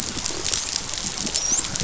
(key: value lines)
label: biophony, dolphin
recorder: SoundTrap 500